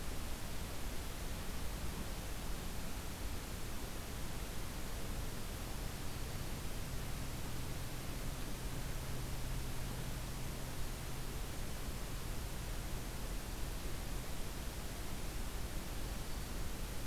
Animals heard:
forest ambience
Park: Acadia National Park